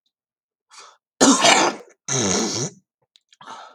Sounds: Throat clearing